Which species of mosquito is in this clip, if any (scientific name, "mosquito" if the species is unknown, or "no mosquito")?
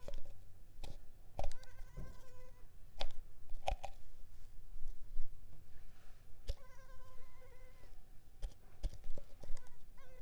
Culex pipiens complex